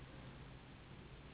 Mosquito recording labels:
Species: Anopheles gambiae s.s.; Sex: female; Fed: unfed; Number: one; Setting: insect culture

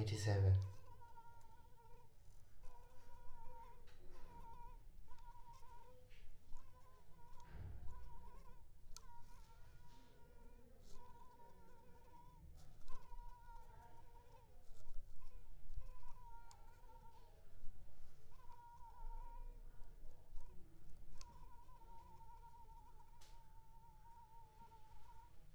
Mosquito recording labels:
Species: Culex pipiens complex; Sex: female; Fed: blood-fed; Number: one; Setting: cup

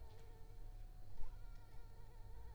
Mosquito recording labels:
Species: Anopheles arabiensis; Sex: female; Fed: unfed; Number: one; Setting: cup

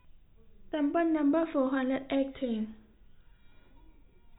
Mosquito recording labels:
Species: no mosquito; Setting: cup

